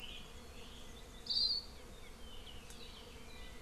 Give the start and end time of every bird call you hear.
1.2s-1.6s: Hawaii Akepa (Loxops coccineus)

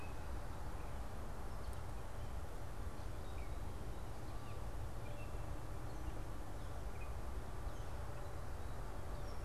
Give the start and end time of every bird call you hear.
0.0s-9.4s: Gray Catbird (Dumetella carolinensis)

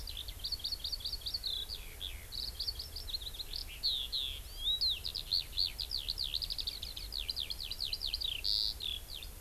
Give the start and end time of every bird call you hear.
0.0s-9.3s: Eurasian Skylark (Alauda arvensis)

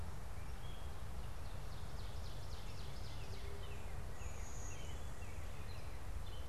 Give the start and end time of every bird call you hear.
0.0s-6.5s: Gray Catbird (Dumetella carolinensis)
0.9s-3.6s: Ovenbird (Seiurus aurocapilla)
2.9s-6.2s: Northern Cardinal (Cardinalis cardinalis)
4.1s-5.8s: Blue-winged Warbler (Vermivora cyanoptera)

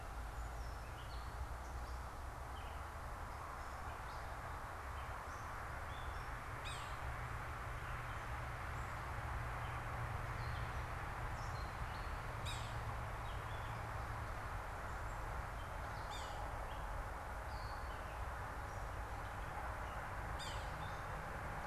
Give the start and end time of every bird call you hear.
0.0s-6.3s: Gray Catbird (Dumetella carolinensis)
6.5s-7.1s: Yellow-bellied Sapsucker (Sphyrapicus varius)
7.7s-21.7s: Gray Catbird (Dumetella carolinensis)
12.3s-13.1s: Yellow-bellied Sapsucker (Sphyrapicus varius)
16.0s-16.5s: Yellow-bellied Sapsucker (Sphyrapicus varius)
20.3s-20.9s: Yellow-bellied Sapsucker (Sphyrapicus varius)

